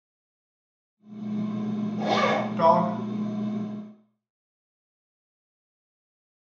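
From 0.96 to 3.97 seconds, the sound of a microwave oven fades in and fades out. While that goes on, at 1.96 seconds, the sound of a zipper is audible. Afterwards, at 2.57 seconds, a voice says "dog".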